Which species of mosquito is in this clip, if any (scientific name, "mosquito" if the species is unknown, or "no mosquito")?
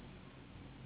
Anopheles gambiae s.s.